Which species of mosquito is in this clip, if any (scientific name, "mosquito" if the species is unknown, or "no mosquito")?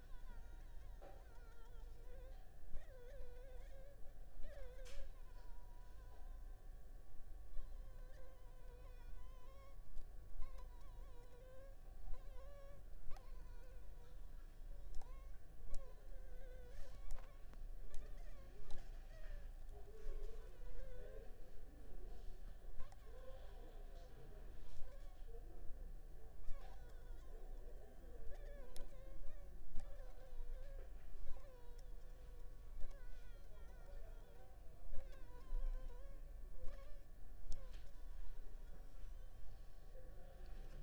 Anopheles funestus s.l.